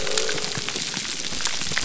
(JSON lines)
{"label": "biophony", "recorder": "SoundTrap 300"}